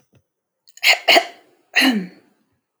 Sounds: Throat clearing